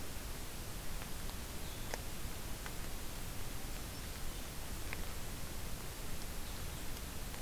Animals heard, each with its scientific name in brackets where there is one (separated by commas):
Blue-headed Vireo (Vireo solitarius)